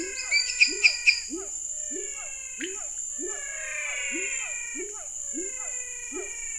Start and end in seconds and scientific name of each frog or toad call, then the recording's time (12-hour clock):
0.0	1.6	Dendropsophus minutus
0.0	6.5	Leptodactylus labyrinthicus
0.0	6.5	Physalaemus albonotatus
0.0	6.5	Physalaemus cuvieri
7:30pm